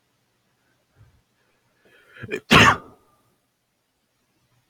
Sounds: Sneeze